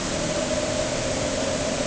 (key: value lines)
label: anthrophony, boat engine
recorder: HydroMoth